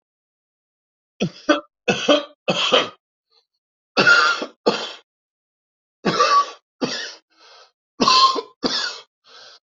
{"expert_labels": [{"quality": "good", "cough_type": "dry", "dyspnea": false, "wheezing": false, "stridor": false, "choking": false, "congestion": false, "nothing": true, "diagnosis": "obstructive lung disease", "severity": "severe"}], "age": 59, "gender": "male", "respiratory_condition": true, "fever_muscle_pain": true, "status": "COVID-19"}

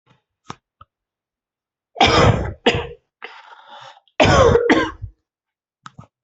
{"expert_labels": [{"quality": "poor", "cough_type": "unknown", "dyspnea": false, "wheezing": true, "stridor": false, "choking": false, "congestion": false, "nothing": true, "diagnosis": "COVID-19", "severity": "unknown"}], "age": 29, "gender": "male", "respiratory_condition": false, "fever_muscle_pain": false, "status": "healthy"}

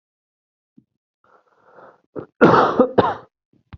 {"expert_labels": [{"quality": "good", "cough_type": "dry", "dyspnea": false, "wheezing": false, "stridor": false, "choking": false, "congestion": false, "nothing": true, "diagnosis": "healthy cough", "severity": "pseudocough/healthy cough"}], "age": 25, "gender": "male", "respiratory_condition": false, "fever_muscle_pain": true, "status": "symptomatic"}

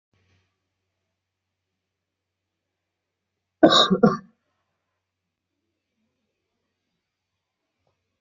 {"expert_labels": [{"quality": "good", "cough_type": "unknown", "dyspnea": false, "wheezing": false, "stridor": false, "choking": false, "congestion": false, "nothing": true, "diagnosis": "healthy cough", "severity": "pseudocough/healthy cough"}]}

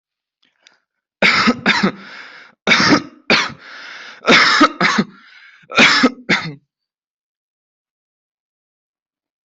{"expert_labels": [{"quality": "good", "cough_type": "dry", "dyspnea": false, "wheezing": false, "stridor": false, "choking": false, "congestion": false, "nothing": true, "diagnosis": "COVID-19", "severity": "mild"}], "age": 20, "gender": "male", "respiratory_condition": true, "fever_muscle_pain": false, "status": "COVID-19"}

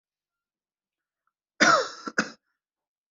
{"expert_labels": [{"quality": "ok", "cough_type": "dry", "dyspnea": false, "wheezing": true, "stridor": false, "choking": false, "congestion": false, "nothing": false, "diagnosis": "COVID-19", "severity": "mild"}]}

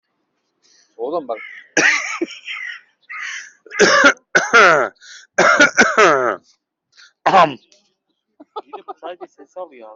{"expert_labels": [{"quality": "ok", "cough_type": "dry", "dyspnea": false, "wheezing": false, "stridor": false, "choking": false, "congestion": false, "nothing": true, "diagnosis": "healthy cough", "severity": "pseudocough/healthy cough"}], "age": 40, "gender": "female", "respiratory_condition": false, "fever_muscle_pain": true, "status": "COVID-19"}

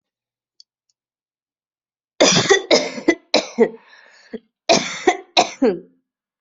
{"expert_labels": [{"quality": "good", "cough_type": "wet", "dyspnea": false, "wheezing": false, "stridor": false, "choking": false, "congestion": false, "nothing": true, "diagnosis": "upper respiratory tract infection", "severity": "mild"}], "age": 26, "gender": "female", "respiratory_condition": false, "fever_muscle_pain": false, "status": "symptomatic"}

